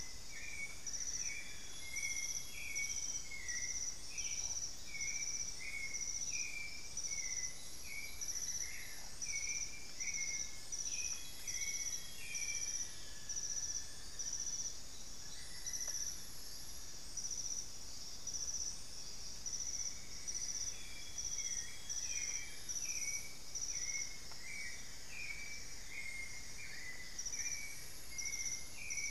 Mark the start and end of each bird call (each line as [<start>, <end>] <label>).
[0.00, 12.96] White-necked Thrush (Turdus albicollis)
[0.56, 1.96] Amazonian Barred-Woodcreeper (Dendrocolaptes certhia)
[0.96, 3.56] Amazonian Grosbeak (Cyanoloxia rothschildii)
[3.86, 6.56] unidentified bird
[7.96, 9.36] Amazonian Barred-Woodcreeper (Dendrocolaptes certhia)
[10.36, 11.46] unidentified bird
[10.56, 13.16] Amazonian Grosbeak (Cyanoloxia rothschildii)
[11.36, 14.96] Elegant Woodcreeper (Xiphorhynchus elegans)
[12.66, 14.96] Grayish Mourner (Rhytipterna simplex)
[15.06, 17.06] Amazonian Barred-Woodcreeper (Dendrocolaptes certhia)
[19.26, 28.36] Cinnamon-throated Woodcreeper (Dendrexetastes rufigula)
[20.36, 29.10] White-necked Thrush (Turdus albicollis)
[20.46, 23.06] Amazonian Grosbeak (Cyanoloxia rothschildii)
[21.56, 23.16] Amazonian Barred-Woodcreeper (Dendrocolaptes certhia)
[23.26, 29.10] Long-winged Antwren (Myrmotherula longipennis)